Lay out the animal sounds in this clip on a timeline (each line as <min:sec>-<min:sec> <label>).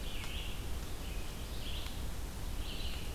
0:00.0-0:03.1 Red-eyed Vireo (Vireo olivaceus)